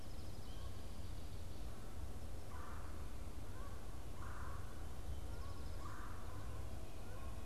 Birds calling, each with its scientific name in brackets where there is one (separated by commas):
Red-bellied Woodpecker (Melanerpes carolinus)